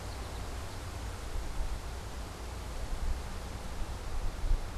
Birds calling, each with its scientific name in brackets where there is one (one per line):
American Goldfinch (Spinus tristis)